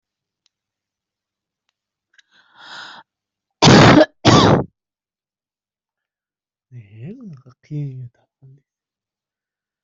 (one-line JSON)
{"expert_labels": [{"quality": "ok", "cough_type": "wet", "dyspnea": false, "wheezing": false, "stridor": false, "choking": false, "congestion": false, "nothing": true, "diagnosis": "lower respiratory tract infection", "severity": "mild"}], "age": 41, "gender": "female", "respiratory_condition": true, "fever_muscle_pain": false, "status": "healthy"}